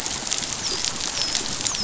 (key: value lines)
label: biophony, dolphin
recorder: SoundTrap 500